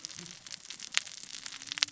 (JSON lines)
{"label": "biophony, cascading saw", "recorder": "SoundTrap 600 or HydroMoth"}